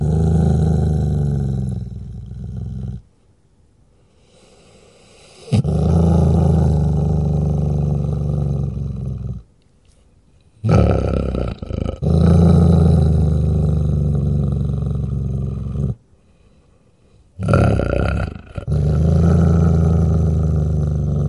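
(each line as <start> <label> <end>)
0.0 A dog growls warningly and then fades. 3.0
5.5 A dog growls warningly and then fades. 9.5
10.6 A dog growls hoarsely, fading away. 11.9
11.9 A dog growls warningly and then fades. 16.0
17.4 A dog growls hoarsely, fading away. 18.6
18.5 A dog growls warningly in a steady manner. 21.3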